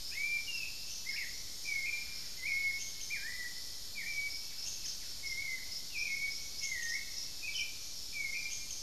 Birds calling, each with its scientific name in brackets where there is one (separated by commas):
Buff-breasted Wren (Cantorchilus leucotis), Hauxwell's Thrush (Turdus hauxwelli)